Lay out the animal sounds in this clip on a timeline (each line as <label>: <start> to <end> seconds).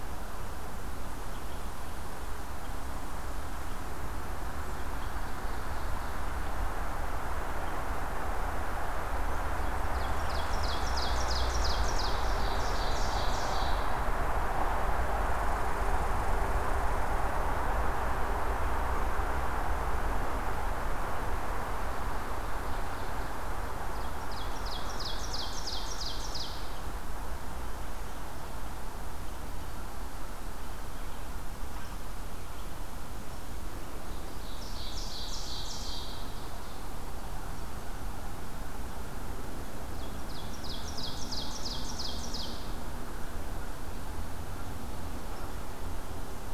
Ovenbird (Seiurus aurocapilla): 4.5 to 6.4 seconds
Ovenbird (Seiurus aurocapilla): 9.7 to 14.0 seconds
Red Squirrel (Tamiasciurus hudsonicus): 10.1 to 11.7 seconds
Red Squirrel (Tamiasciurus hudsonicus): 15.1 to 17.7 seconds
Ovenbird (Seiurus aurocapilla): 23.9 to 26.7 seconds
Ovenbird (Seiurus aurocapilla): 34.3 to 36.4 seconds
Ovenbird (Seiurus aurocapilla): 39.8 to 42.9 seconds